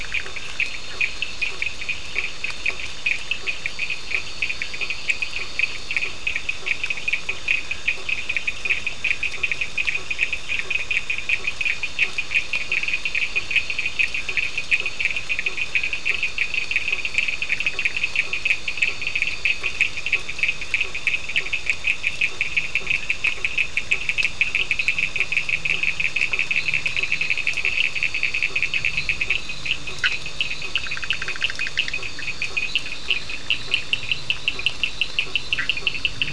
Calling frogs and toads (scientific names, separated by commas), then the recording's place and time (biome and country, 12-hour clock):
Boana bischoffi, Elachistocleis bicolor, Boana faber, Sphaenorhynchus surdus
Atlantic Forest, Brazil, 11:15pm